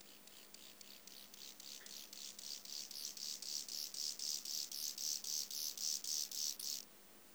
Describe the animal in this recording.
Chorthippus mollis, an orthopteran